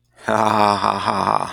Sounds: Laughter